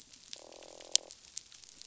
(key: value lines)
label: biophony, croak
recorder: SoundTrap 500